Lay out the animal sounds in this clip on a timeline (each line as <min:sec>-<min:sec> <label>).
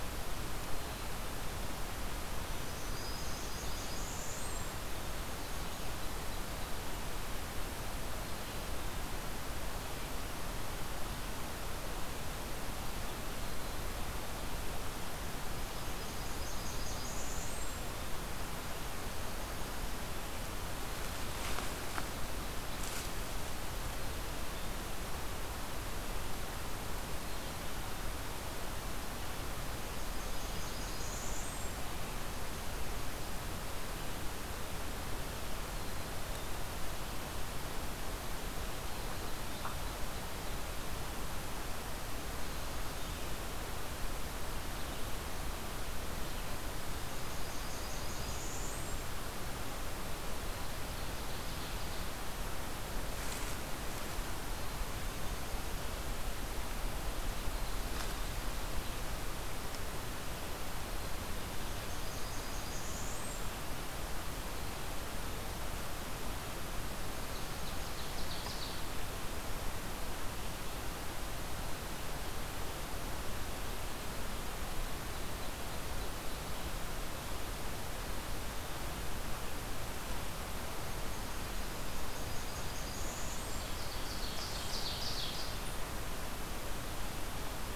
0:02.3-0:04.8 Blackburnian Warbler (Setophaga fusca)
0:15.5-0:18.0 Blackburnian Warbler (Setophaga fusca)
0:29.7-0:32.0 Blackburnian Warbler (Setophaga fusca)
0:46.8-0:49.1 Blackburnian Warbler (Setophaga fusca)
1:01.4-1:03.6 Blackburnian Warbler (Setophaga fusca)
1:07.2-1:09.0 Ovenbird (Seiurus aurocapilla)
1:21.2-1:23.8 Blackburnian Warbler (Setophaga fusca)
1:23.4-1:25.7 Ovenbird (Seiurus aurocapilla)